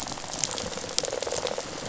{"label": "biophony, rattle response", "recorder": "SoundTrap 500"}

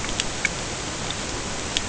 {"label": "ambient", "recorder": "HydroMoth"}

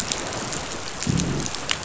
{"label": "biophony, growl", "recorder": "SoundTrap 500"}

